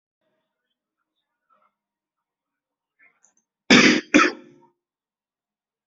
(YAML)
expert_labels:
- quality: good
  cough_type: dry
  dyspnea: false
  wheezing: false
  stridor: false
  choking: false
  congestion: false
  nothing: true
  diagnosis: upper respiratory tract infection
  severity: mild
age: 42
gender: male
respiratory_condition: false
fever_muscle_pain: false
status: symptomatic